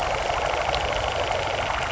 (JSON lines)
{"label": "anthrophony, boat engine", "recorder": "SoundTrap 300"}